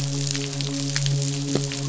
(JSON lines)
{"label": "biophony, midshipman", "recorder": "SoundTrap 500"}